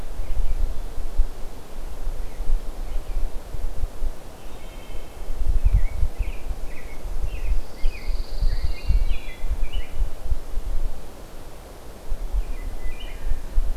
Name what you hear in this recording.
Wood Thrush, American Robin, Pine Warbler